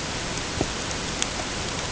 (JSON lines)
{"label": "ambient", "recorder": "HydroMoth"}